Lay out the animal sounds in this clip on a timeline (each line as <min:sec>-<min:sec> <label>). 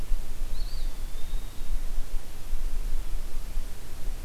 0:00.2-0:02.2 Eastern Wood-Pewee (Contopus virens)